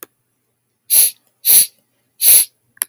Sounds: Sniff